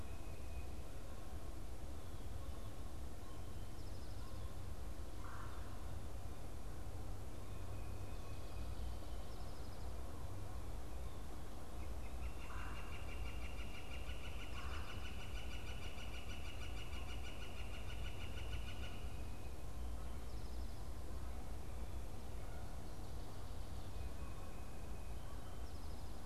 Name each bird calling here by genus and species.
Melanerpes carolinus, Colaptes auratus